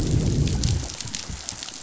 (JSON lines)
{"label": "biophony, growl", "recorder": "SoundTrap 500"}